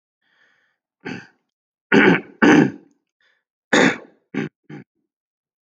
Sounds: Throat clearing